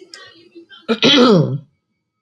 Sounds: Throat clearing